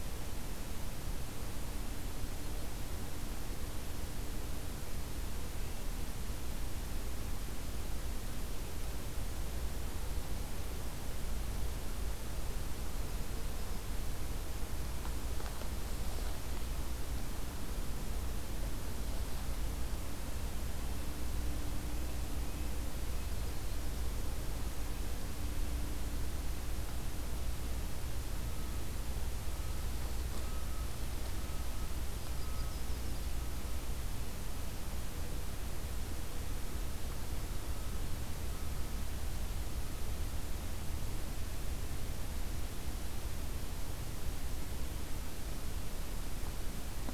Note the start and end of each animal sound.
[1.79, 2.91] Yellow-rumped Warbler (Setophaga coronata)
[5.41, 5.89] Red-breasted Nuthatch (Sitta canadensis)
[19.85, 23.59] Red-breasted Nuthatch (Sitta canadensis)
[32.06, 33.35] Yellow-rumped Warbler (Setophaga coronata)

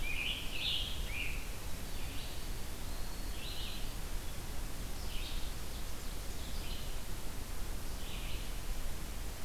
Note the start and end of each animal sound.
[0.00, 1.75] Scarlet Tanager (Piranga olivacea)
[0.52, 8.70] Red-eyed Vireo (Vireo olivaceus)
[2.28, 3.57] Eastern Wood-Pewee (Contopus virens)
[5.10, 6.65] Ovenbird (Seiurus aurocapilla)

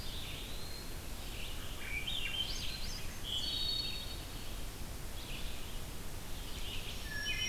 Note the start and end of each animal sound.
[0.00, 1.13] Eastern Wood-Pewee (Contopus virens)
[0.00, 7.49] Red-eyed Vireo (Vireo olivaceus)
[1.49, 3.22] Swainson's Thrush (Catharus ustulatus)
[3.19, 4.82] Wood Thrush (Hylocichla mustelina)
[6.76, 7.49] Black-throated Green Warbler (Setophaga virens)
[6.86, 7.49] Wood Thrush (Hylocichla mustelina)

